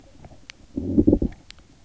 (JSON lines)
{"label": "biophony, low growl", "recorder": "SoundTrap 300"}